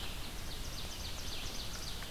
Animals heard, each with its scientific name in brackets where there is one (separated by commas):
Red-eyed Vireo (Vireo olivaceus), Ovenbird (Seiurus aurocapilla)